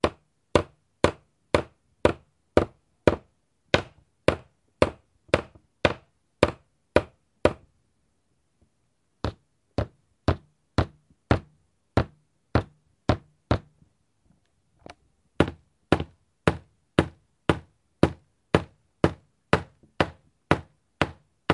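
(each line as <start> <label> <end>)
0.0 A hammer lightly hits wood in a repetitive rhythm. 7.7
9.2 Hammer lightly hitting dense wood. 14.1
15.2 Hammer hitting wood repeatedly at a gradually increasing rate. 21.5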